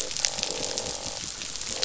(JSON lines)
{"label": "biophony, croak", "recorder": "SoundTrap 500"}